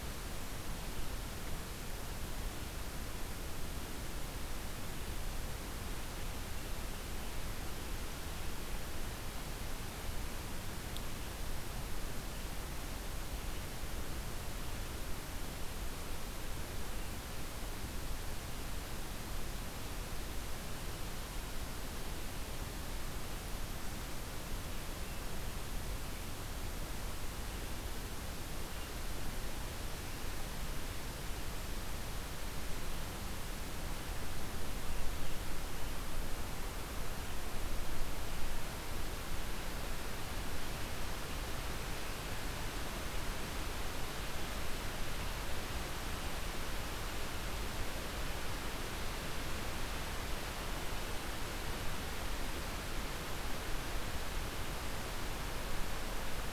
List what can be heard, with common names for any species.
forest ambience